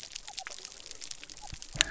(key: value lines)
label: biophony
recorder: SoundTrap 300